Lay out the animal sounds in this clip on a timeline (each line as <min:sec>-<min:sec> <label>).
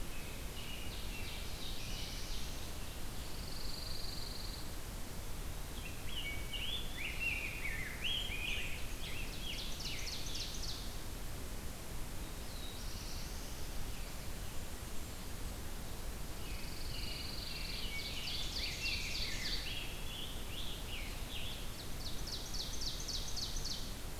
0:00.1-0:02.7 American Robin (Turdus migratorius)
0:00.7-0:02.3 Ovenbird (Seiurus aurocapilla)
0:01.1-0:02.7 Black-throated Blue Warbler (Setophaga caerulescens)
0:02.9-0:04.9 Pine Warbler (Setophaga pinus)
0:05.7-0:08.8 Rose-breasted Grosbeak (Pheucticus ludovicianus)
0:08.6-0:10.2 Scarlet Tanager (Piranga olivacea)
0:08.8-0:11.2 Ovenbird (Seiurus aurocapilla)
0:12.3-0:14.0 Black-throated Blue Warbler (Setophaga caerulescens)
0:16.0-0:18.3 Pine Warbler (Setophaga pinus)
0:16.1-0:17.9 American Robin (Turdus migratorius)
0:17.2-0:19.7 Ovenbird (Seiurus aurocapilla)
0:17.6-0:19.9 Rose-breasted Grosbeak (Pheucticus ludovicianus)
0:19.5-0:21.7 Scarlet Tanager (Piranga olivacea)
0:21.6-0:24.2 Ovenbird (Seiurus aurocapilla)